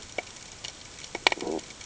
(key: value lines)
label: ambient
recorder: HydroMoth